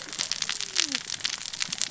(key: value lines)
label: biophony, cascading saw
recorder: SoundTrap 600 or HydroMoth